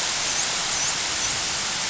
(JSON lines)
{"label": "biophony, dolphin", "recorder": "SoundTrap 500"}